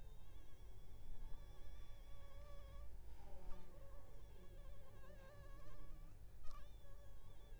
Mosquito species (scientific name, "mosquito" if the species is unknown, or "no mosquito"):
mosquito